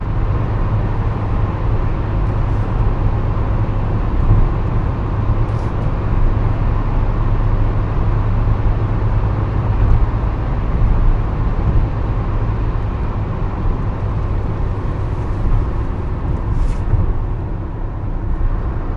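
0.0s A car is driving down a road. 19.0s
4.1s A bumping sound. 4.6s
9.7s Bumping sound. 10.1s
11.6s Bumping sound. 12.0s
15.4s Bumping sound. 15.7s
16.4s Bumping sound. 17.2s

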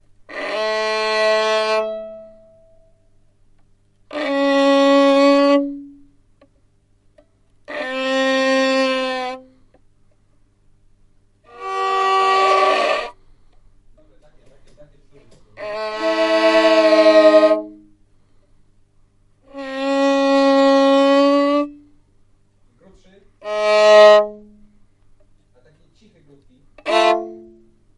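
0.1s A string instrument plays a loud note. 2.7s
4.0s A string instrument plays a loud, clear note. 6.1s
7.5s A string instrument plays a loud, clear note. 9.5s
11.4s A string instrument plays a note poorly. 13.3s
15.5s A string instrument plays a note poorly. 18.0s
19.4s A string instrument plays a loud, clear note. 21.9s
23.3s A string instrument plays a loud, clear note. 24.6s
26.8s A string instrument plays a loud, clear note. 27.8s

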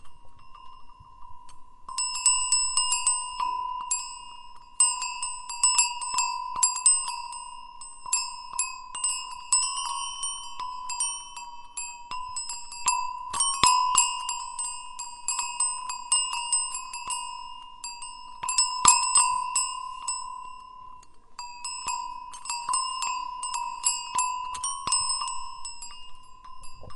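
1.4s A cowbell rings loudly and repeatedly nearby. 27.0s

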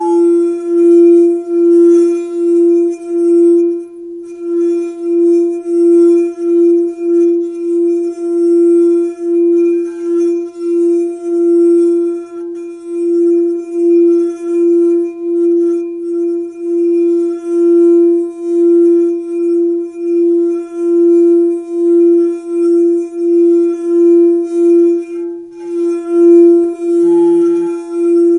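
0.0s A very loud screeching noise on a glass bowl, pulsating uniformly with slight vibration. 28.4s

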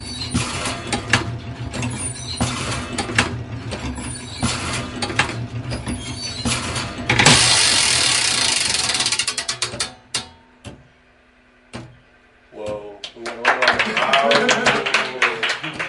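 0.0s A creaking mechanical sound repeats and ends with a click. 7.1s
7.1s A strong, sharp metallic sound is followed by multiple fading clicks. 10.8s
12.5s Applause with excitement. 15.9s

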